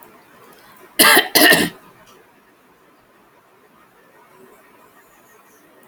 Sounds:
Throat clearing